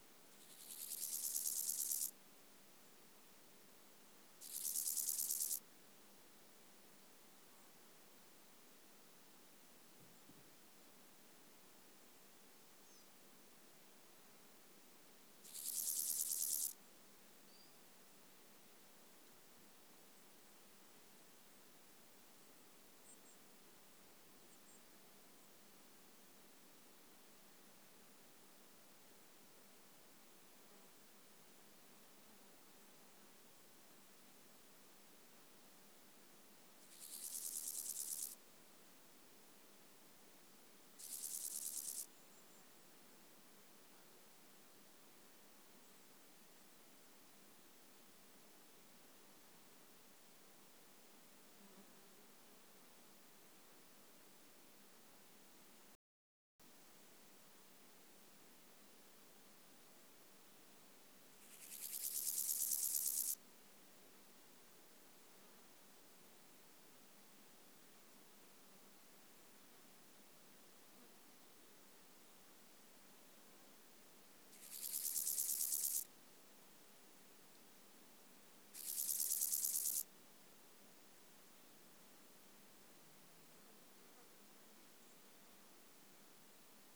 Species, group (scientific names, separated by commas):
Chorthippus bornhalmi, Orthoptera